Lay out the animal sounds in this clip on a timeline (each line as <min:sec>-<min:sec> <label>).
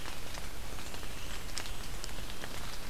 0:00.5-0:02.1 Blackburnian Warbler (Setophaga fusca)